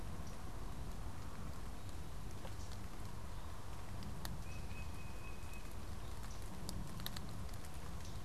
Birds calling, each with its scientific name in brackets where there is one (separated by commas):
Tufted Titmouse (Baeolophus bicolor), unidentified bird